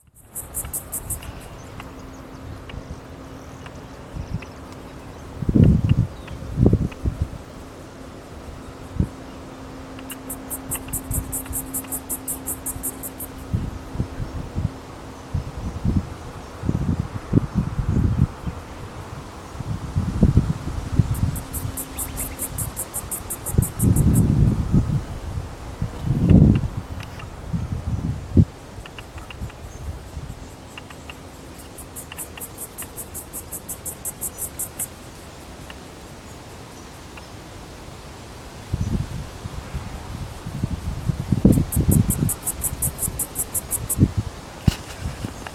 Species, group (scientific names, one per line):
Yoyetta celis
Cicadidae